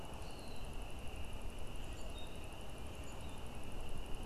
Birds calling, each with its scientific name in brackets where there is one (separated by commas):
Common Grackle (Quiscalus quiscula)